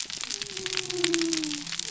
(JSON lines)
{"label": "biophony", "recorder": "SoundTrap 300"}